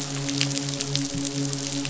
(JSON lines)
{"label": "biophony, midshipman", "recorder": "SoundTrap 500"}